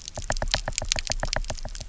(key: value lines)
label: biophony, knock
recorder: SoundTrap 300